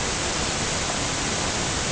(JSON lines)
{"label": "ambient", "recorder": "HydroMoth"}